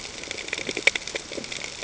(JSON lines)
{"label": "ambient", "recorder": "HydroMoth"}